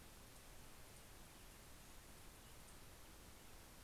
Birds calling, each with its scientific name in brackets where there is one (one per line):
Pacific-slope Flycatcher (Empidonax difficilis)